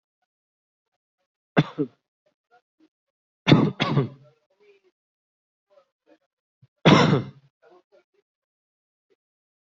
{"expert_labels": [{"quality": "ok", "cough_type": "dry", "dyspnea": false, "wheezing": false, "stridor": false, "choking": false, "congestion": false, "nothing": true, "diagnosis": "upper respiratory tract infection", "severity": "unknown"}], "age": 34, "gender": "male", "respiratory_condition": false, "fever_muscle_pain": false, "status": "healthy"}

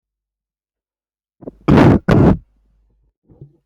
{"expert_labels": [{"quality": "poor", "cough_type": "unknown", "dyspnea": false, "wheezing": false, "stridor": false, "choking": false, "congestion": false, "nothing": true, "diagnosis": "healthy cough", "severity": "pseudocough/healthy cough"}], "age": 27, "gender": "male", "respiratory_condition": false, "fever_muscle_pain": false, "status": "COVID-19"}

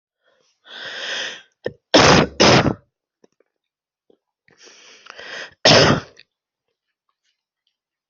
{"expert_labels": [{"quality": "poor", "cough_type": "unknown", "dyspnea": false, "wheezing": false, "stridor": false, "choking": false, "congestion": false, "nothing": true, "diagnosis": "lower respiratory tract infection", "severity": "mild"}], "age": 36, "gender": "female", "respiratory_condition": false, "fever_muscle_pain": false, "status": "COVID-19"}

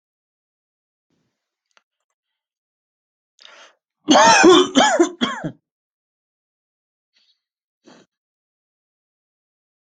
{"expert_labels": [{"quality": "good", "cough_type": "wet", "dyspnea": false, "wheezing": false, "stridor": false, "choking": false, "congestion": false, "nothing": true, "diagnosis": "healthy cough", "severity": "pseudocough/healthy cough"}], "age": 33, "gender": "female", "respiratory_condition": true, "fever_muscle_pain": false, "status": "COVID-19"}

